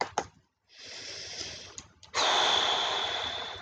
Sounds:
Sigh